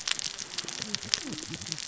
{"label": "biophony, cascading saw", "recorder": "SoundTrap 600 or HydroMoth"}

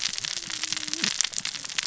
{"label": "biophony, cascading saw", "recorder": "SoundTrap 600 or HydroMoth"}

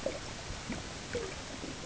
{"label": "ambient", "recorder": "HydroMoth"}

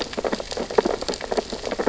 {"label": "biophony, sea urchins (Echinidae)", "recorder": "SoundTrap 600 or HydroMoth"}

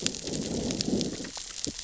{"label": "biophony, growl", "recorder": "SoundTrap 600 or HydroMoth"}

